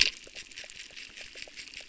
{"label": "biophony, crackle", "recorder": "SoundTrap 600"}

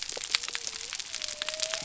{"label": "biophony", "recorder": "SoundTrap 300"}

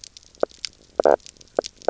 {"label": "biophony, knock croak", "recorder": "SoundTrap 300"}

